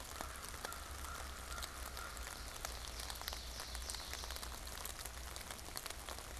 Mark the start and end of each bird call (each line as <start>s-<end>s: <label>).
0.0s-2.5s: American Crow (Corvus brachyrhynchos)
1.8s-4.8s: Ovenbird (Seiurus aurocapilla)